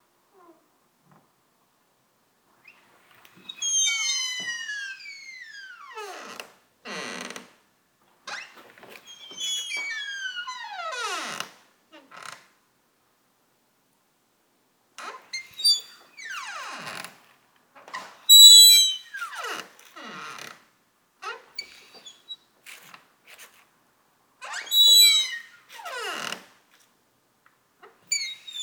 Does the creaking occur multiple times?
yes